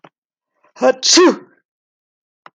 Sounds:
Sneeze